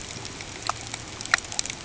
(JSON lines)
{"label": "ambient", "recorder": "HydroMoth"}